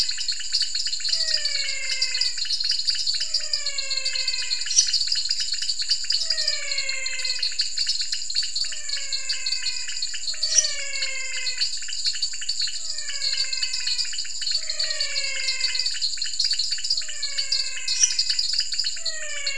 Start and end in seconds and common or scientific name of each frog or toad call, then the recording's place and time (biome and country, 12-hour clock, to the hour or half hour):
0.0	19.5	dwarf tree frog
0.0	19.5	pointedbelly frog
0.0	19.5	menwig frog
4.5	5.3	lesser tree frog
10.4	11.0	lesser tree frog
17.6	18.4	lesser tree frog
Cerrado, Brazil, 8pm